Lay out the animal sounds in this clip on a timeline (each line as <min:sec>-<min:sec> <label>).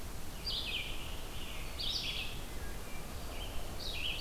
0:00.0-0:04.2 Red-eyed Vireo (Vireo olivaceus)
0:02.2-0:03.2 Wood Thrush (Hylocichla mustelina)